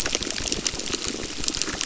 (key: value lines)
label: biophony, crackle
recorder: SoundTrap 600